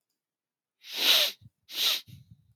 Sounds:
Sniff